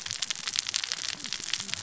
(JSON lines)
{"label": "biophony, cascading saw", "recorder": "SoundTrap 600 or HydroMoth"}